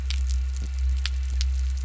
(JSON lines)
{"label": "anthrophony, boat engine", "recorder": "SoundTrap 300"}